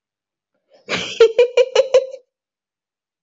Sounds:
Laughter